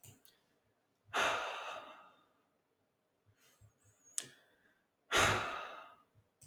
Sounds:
Sigh